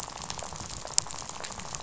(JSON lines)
{"label": "biophony, rattle", "recorder": "SoundTrap 500"}